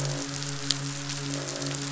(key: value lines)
label: biophony, croak
recorder: SoundTrap 500

label: biophony, midshipman
recorder: SoundTrap 500